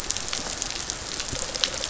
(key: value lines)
label: biophony
recorder: SoundTrap 500